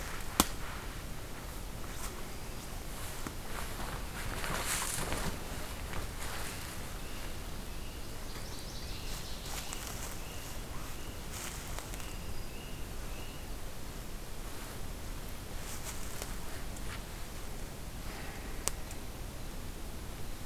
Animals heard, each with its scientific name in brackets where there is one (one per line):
Black-throated Green Warbler (Setophaga virens)
Northern Waterthrush (Parkesia noveboracensis)